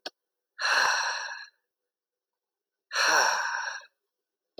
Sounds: Sigh